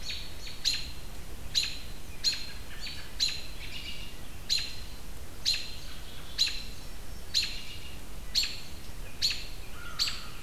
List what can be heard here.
American Robin, American Crow